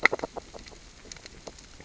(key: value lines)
label: biophony, grazing
recorder: SoundTrap 600 or HydroMoth